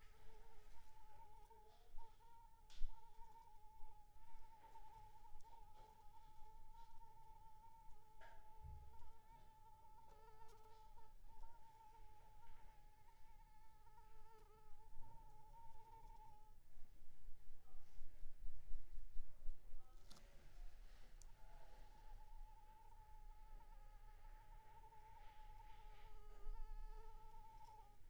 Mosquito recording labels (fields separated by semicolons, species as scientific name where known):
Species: Anopheles arabiensis; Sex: female; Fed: unfed; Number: one; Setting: cup